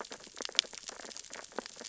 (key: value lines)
label: biophony, sea urchins (Echinidae)
recorder: SoundTrap 600 or HydroMoth